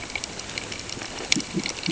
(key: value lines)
label: ambient
recorder: HydroMoth